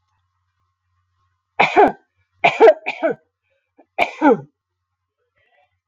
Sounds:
Cough